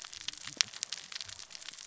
{"label": "biophony, cascading saw", "recorder": "SoundTrap 600 or HydroMoth"}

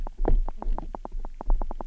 {"label": "biophony, knock", "recorder": "SoundTrap 300"}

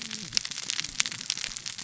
{"label": "biophony, cascading saw", "recorder": "SoundTrap 600 or HydroMoth"}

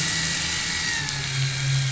{"label": "anthrophony, boat engine", "recorder": "SoundTrap 500"}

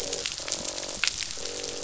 {"label": "biophony, croak", "recorder": "SoundTrap 500"}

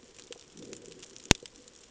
{"label": "ambient", "recorder": "HydroMoth"}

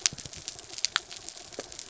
{"label": "anthrophony, mechanical", "recorder": "SoundTrap 300"}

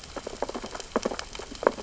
{"label": "biophony, sea urchins (Echinidae)", "recorder": "SoundTrap 600 or HydroMoth"}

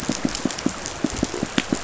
{"label": "biophony, pulse", "recorder": "SoundTrap 500"}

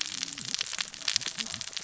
{"label": "biophony, cascading saw", "recorder": "SoundTrap 600 or HydroMoth"}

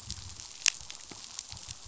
{"label": "biophony", "recorder": "SoundTrap 500"}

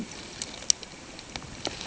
{"label": "ambient", "recorder": "HydroMoth"}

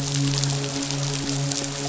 {"label": "biophony, midshipman", "recorder": "SoundTrap 500"}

